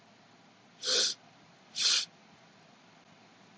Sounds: Sniff